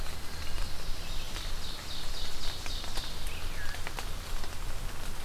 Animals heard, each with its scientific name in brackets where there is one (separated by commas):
Ovenbird (Seiurus aurocapilla), Veery (Catharus fuscescens), Wood Thrush (Hylocichla mustelina)